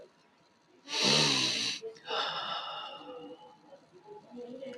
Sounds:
Sniff